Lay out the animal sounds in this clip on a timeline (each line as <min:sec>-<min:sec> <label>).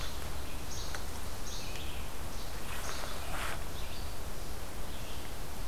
0:00.0-0:03.4 Least Flycatcher (Empidonax minimus)
0:00.0-0:05.7 Red-eyed Vireo (Vireo olivaceus)